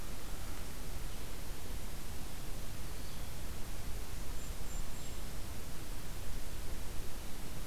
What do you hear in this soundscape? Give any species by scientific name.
Vireo solitarius, Regulus satrapa